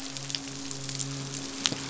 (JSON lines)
{"label": "biophony, midshipman", "recorder": "SoundTrap 500"}